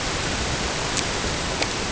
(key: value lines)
label: ambient
recorder: HydroMoth